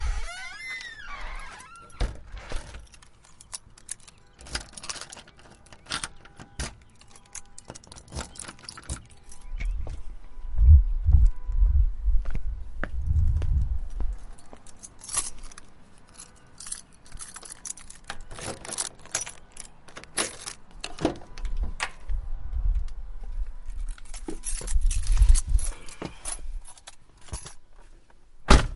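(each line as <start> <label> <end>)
0.0 A wooden door creaks slowly and fades away. 1.9
1.8 A muffled thumping sound coming from a door. 2.7
2.7 A keylock is being used continuously with a uniform rattling sound. 9.4
9.3 Air whooshes through a microphone in a muffled, fluctuating, and thudding manner. 14.3
12.0 Someone walks in a uniform, producing a thumping sound. 14.2
14.3 A set of keys is rattling with an intermittent metallic sound. 18.0
17.9 A door is being unlocked with a continuous rattling metallic sound. 22.2
23.8 Keys rattling with intermittent metallic sounds. 27.5
25.5 A person sighs in a muffled manner. 26.7
28.4 A door closes with a loud thump. 28.8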